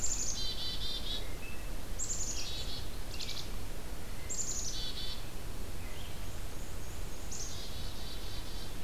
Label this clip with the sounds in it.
Black-capped Chickadee, Red-eyed Vireo, Black-and-white Warbler